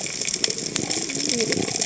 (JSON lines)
{"label": "biophony", "recorder": "HydroMoth"}
{"label": "biophony, cascading saw", "recorder": "HydroMoth"}